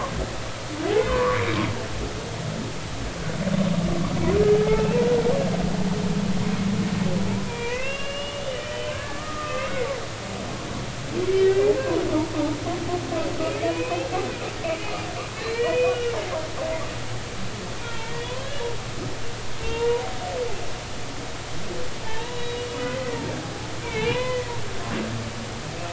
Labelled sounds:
1.1	1.4	humpback whale, 0.96 to 1.2 kHz
4.5	5.0	humpback whale, 0.80 to 2.8 kHz
7.5	10.4	humpback whale, 0.90 to 3.4 kHz
11.4	11.7	humpback whale, 1.8 to 2.0 kHz
13.4	14.1	humpback whale, 0.93 to 2.7 kHz
14.7	16.2	humpback whale, 1.8 to 3.0 kHz
17.8	18.6	humpback whale, 0.86 to 3.5 kHz
19.6	20.0	humpback whale, 0.86 to 3.8 kHz
22.0	24.5	humpback whale, 0.83 to 3.9 kHz

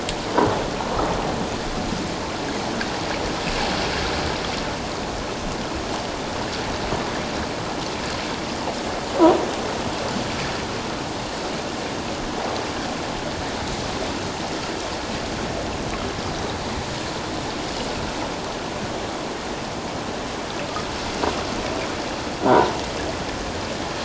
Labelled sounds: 22.5	22.7	croaking sound likely from a nearby submerged object, 0.84 to 1.0 kHz

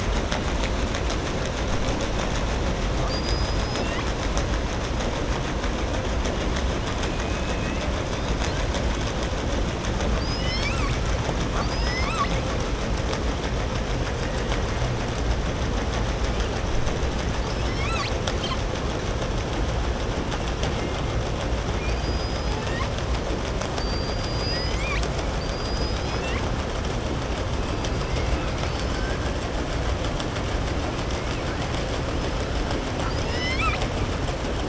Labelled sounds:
21.8	22.9	killer whale, southern resident, 0.94 to 5.6 kHz
32.9	33.9	killer whale, southern resident, 0.97 to 7.9 kHz

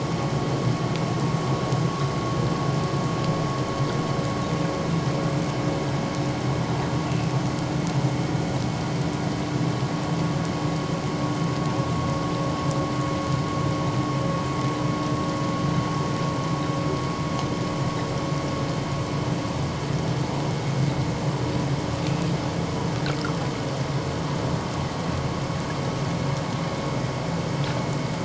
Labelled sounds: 22.1	22.3	vessel noise, 2.5 to 2.7 kHz

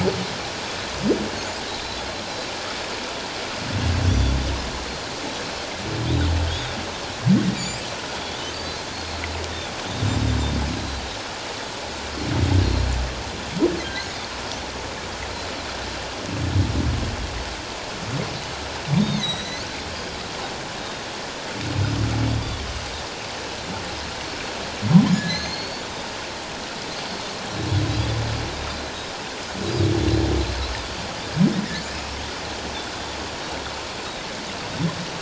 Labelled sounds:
1.7	2.0	Pacific white-sided dolphin, 3.9 to 4.2 kHz
4.1	4.3	Pacific white-sided dolphin, 3.3 to 4.8 kHz
6.5	6.7	Pacific white-sided dolphin, 3.5 to 3.8 kHz
7.6	7.8	Pacific white-sided dolphin, 4.5 to 5.0 kHz
8.2	9.2	Pacific white-sided dolphin, 3.3 to 4.4 kHz
13.8	14.1	humpback whale, 1.5 to 1.6 kHz
19.0	19.7	humpback whale, 1.8 to 6.4 kHz
19.8	20.1	Pacific white-sided dolphin, 3.1 to 3.3 kHz
20.8	21.0	Pacific white-sided dolphin, 3.6 to 3.8 kHz
25.1	25.8	humpback whale, 1.6 to 6.8 kHz
31.8	32.1	humpback whale, 2.3 to 2.6 kHz

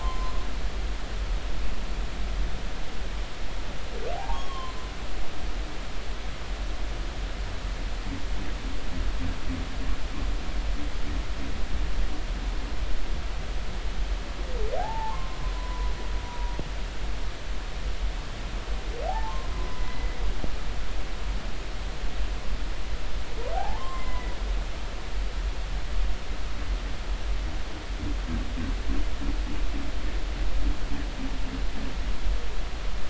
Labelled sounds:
0.0	0.5	humpback whale, 0.96 to 1.1 kHz
4.1	4.8	humpback whale, 0.80 to 3.4 kHz
14.8	15.9	humpback whale, 0.80 to 1.1 kHz
16.3	16.6	humpback whale, 0.93 to 0.99 kHz
19.0	20.2	humpback whale, 0.80 to 2.1 kHz
23.5	24.3	humpback whale, 0.80 to 7.5 kHz

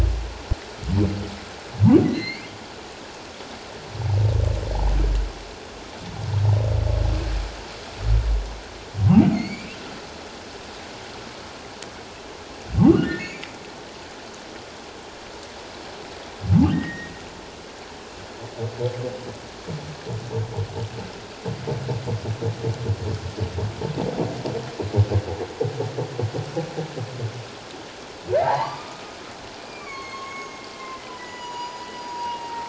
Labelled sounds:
2.0	2.5	humpback whale, 1.9 to 5.0 kHz
9.3	9.8	humpback whale, 2.0 to 7.1 kHz
13.0	13.6	humpback whale, 1.4 to 4.8 kHz
16.7	17.1	humpback whale, 1.8 to 2.1 kHz
28.4	32.6	humpback whale, 0.78 to 7.0 kHz

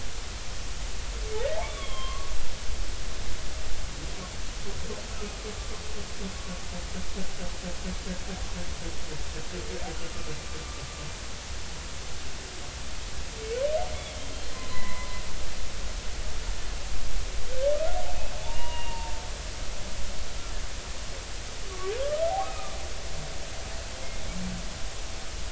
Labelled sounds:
1.6	2.3	humpback whale, 0.99 to 3.6 kHz
5.1	5.5	humpback whale, 1.2 to 1.4 kHz
14.5	15.1	humpback whale, 0.96 to 4.2 kHz
18.4	19.1	humpback whale, 0.83 to 3.0 kHz
22.0	22.8	humpback whale, 1.0 to 1.4 kHz
23.3	23.6	humpback whale, 0.80 to 0.93 kHz

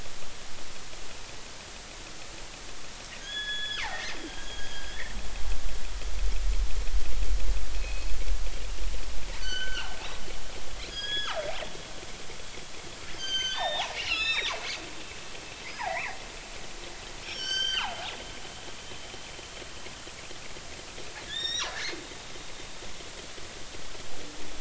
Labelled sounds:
3.2	4.9	killer whale, northern resident, G clan, 0.80 to 5.2 kHz
7.7	8.2	killer whale, northern resident, G clan, 2.4 to 4.3 kHz
9.4	9.9	killer whale, northern resident, G clan, 1.3 to 4.6 kHz
10.9	11.4	killer whale, northern resident, G clan, 0.80 to 6.8 kHz
13.1	14.5	killer whale, northern resident, G clan, 0.80 to 6.7 kHz
15.7	16.2	killer whale, northern resident, G clan, 0.80 to 2.7 kHz
17.2	18.9	killer whale, northern resident, G clan, 0.80 to 7.9 kHz
21.3	22.6	killer whale, northern resident, G clan, 1.6 to 7.6 kHz

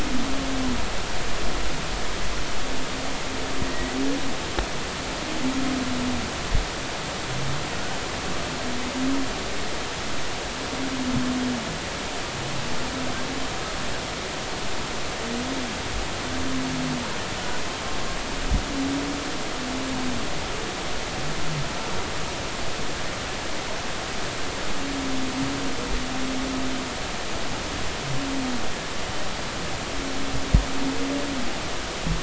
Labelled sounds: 3.7	4.0	humpback whale, 1.8 to 2.0 kHz

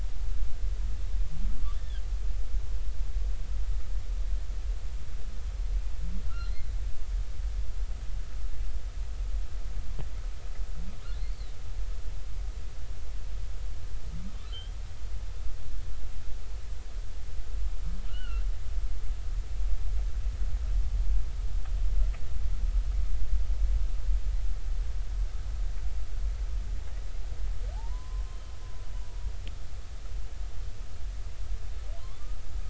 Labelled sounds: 1.7	2.0	humpback whale, 1.5 to 3.6 kHz
6.3	6.7	humpback whale, 3.9 to 4.3 kHz
11.1	11.5	humpback whale, 3.8 to 4.6 kHz
18.1	18.4	humpback whale, 1.2 to 3.1 kHz
27.7	28.5	humpback whale, 0.80 to 3.2 kHz

